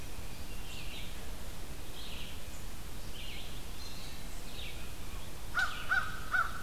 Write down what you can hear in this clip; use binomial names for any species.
Vireo olivaceus, Corvus brachyrhynchos